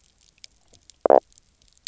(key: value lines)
label: biophony
recorder: SoundTrap 300